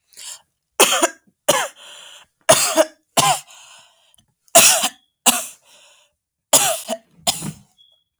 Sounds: Cough